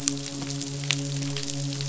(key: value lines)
label: biophony, midshipman
recorder: SoundTrap 500